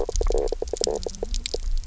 {"label": "biophony, knock croak", "recorder": "SoundTrap 300"}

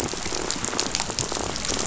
{"label": "biophony, rattle", "recorder": "SoundTrap 500"}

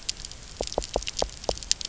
{"label": "biophony", "recorder": "SoundTrap 300"}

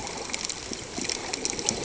{"label": "ambient", "recorder": "HydroMoth"}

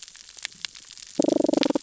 {"label": "biophony, damselfish", "recorder": "SoundTrap 600 or HydroMoth"}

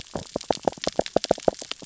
{"label": "biophony, sea urchins (Echinidae)", "recorder": "SoundTrap 600 or HydroMoth"}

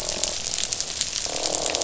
{"label": "biophony, croak", "recorder": "SoundTrap 500"}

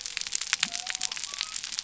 {"label": "biophony", "recorder": "SoundTrap 300"}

